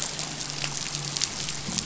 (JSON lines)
{"label": "anthrophony, boat engine", "recorder": "SoundTrap 500"}